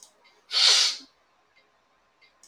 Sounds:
Sniff